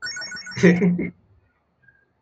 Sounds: Laughter